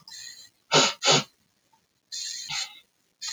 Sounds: Sniff